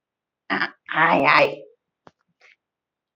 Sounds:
Throat clearing